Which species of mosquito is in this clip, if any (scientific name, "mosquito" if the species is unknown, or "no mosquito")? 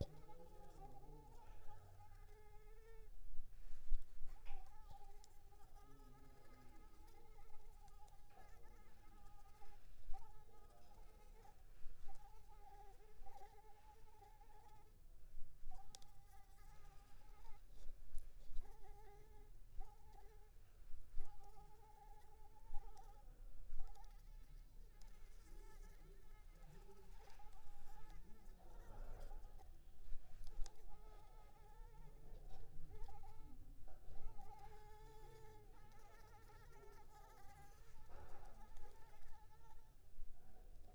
Anopheles arabiensis